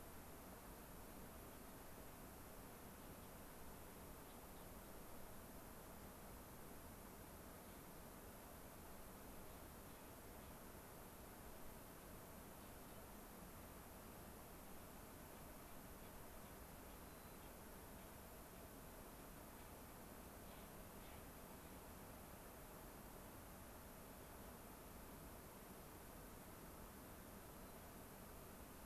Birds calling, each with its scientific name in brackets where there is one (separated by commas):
White-crowned Sparrow (Zonotrichia leucophrys), Gray-crowned Rosy-Finch (Leucosticte tephrocotis), Clark's Nutcracker (Nucifraga columbiana)